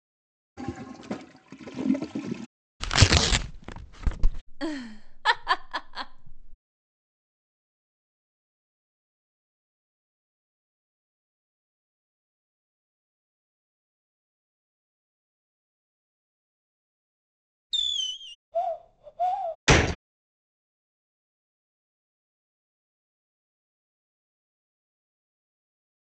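At 0.56 seconds, a toilet flushes. Then, at 2.8 seconds, tearing is heard. After that, at 4.47 seconds, someone chuckles. At 17.69 seconds, the sound of fireworks rings out. Following that, at 18.52 seconds, you can hear bird vocalization. Afterwards, at 19.65 seconds, gunfire is audible.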